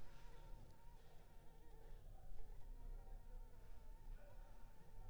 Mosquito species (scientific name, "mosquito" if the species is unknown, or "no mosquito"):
Anopheles arabiensis